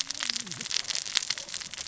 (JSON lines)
{"label": "biophony, cascading saw", "recorder": "SoundTrap 600 or HydroMoth"}